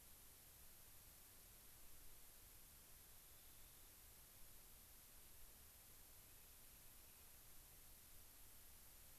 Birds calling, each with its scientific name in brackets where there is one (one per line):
Rock Wren (Salpinctes obsoletus)